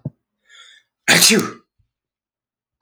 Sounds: Sneeze